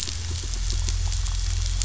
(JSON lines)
{"label": "biophony, pulse", "recorder": "SoundTrap 500"}
{"label": "anthrophony, boat engine", "recorder": "SoundTrap 500"}